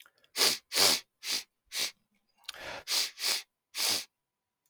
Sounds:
Sniff